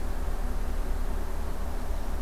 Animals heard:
forest ambience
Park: Acadia National Park